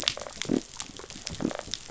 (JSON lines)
{"label": "biophony", "recorder": "SoundTrap 500"}